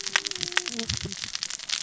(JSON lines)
{"label": "biophony, cascading saw", "recorder": "SoundTrap 600 or HydroMoth"}